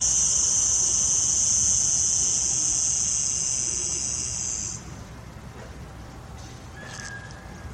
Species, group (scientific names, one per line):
Cicada barbara
Cicadidae